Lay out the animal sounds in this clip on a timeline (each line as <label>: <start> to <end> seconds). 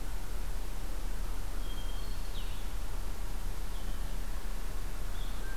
Blue-headed Vireo (Vireo solitarius): 0.0 to 5.6 seconds
Hermit Thrush (Catharus guttatus): 1.6 to 2.5 seconds